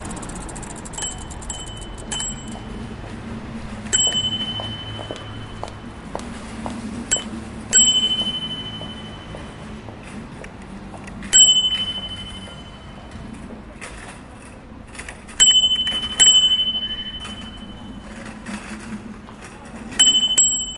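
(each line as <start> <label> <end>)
0.0 A bicycle coming to a slow stop. 3.4
0.9 A bicycle bell rings repeatedly, creating a shrill noise. 2.4
2.1 Footsteps in high heels fading away. 15.3
3.9 A bicycle bell rings with a shrill sound. 5.3
7.1 A bicycle bell rings with a shrill sound. 9.8
10.1 Rattling sound in the background created by the wheels of a small vehicle. 20.8
11.2 A bicycle bell rings with a shrill sound. 13.2
15.3 A bicycle bell rings repeatedly, creating a shrill noise. 17.7
19.9 A bicycle bell rings repeatedly, creating a shrill noise. 20.8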